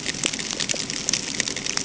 {"label": "ambient", "recorder": "HydroMoth"}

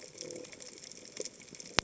{"label": "biophony", "recorder": "HydroMoth"}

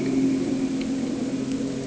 {"label": "anthrophony, boat engine", "recorder": "HydroMoth"}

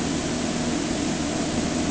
{"label": "anthrophony, boat engine", "recorder": "HydroMoth"}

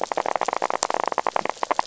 {"label": "biophony, rattle", "recorder": "SoundTrap 500"}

